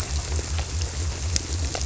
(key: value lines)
label: biophony
recorder: SoundTrap 300